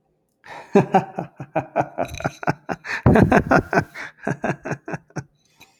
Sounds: Laughter